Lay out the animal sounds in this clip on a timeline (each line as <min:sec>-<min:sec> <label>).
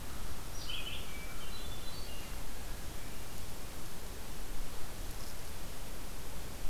0:00.4-0:01.2 Red-eyed Vireo (Vireo olivaceus)
0:01.1-0:02.6 Hermit Thrush (Catharus guttatus)